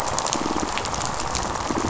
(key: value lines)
label: biophony, rattle response
recorder: SoundTrap 500